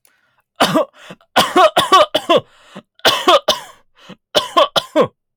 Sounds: Cough